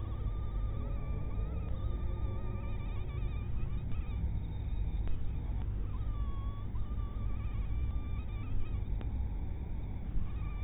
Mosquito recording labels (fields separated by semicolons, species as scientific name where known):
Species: mosquito; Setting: cup